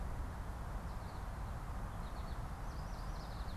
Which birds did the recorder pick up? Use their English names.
American Goldfinch, Yellow Warbler